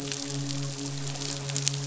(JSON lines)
{"label": "biophony, midshipman", "recorder": "SoundTrap 500"}